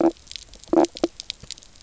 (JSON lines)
{"label": "biophony, knock croak", "recorder": "SoundTrap 300"}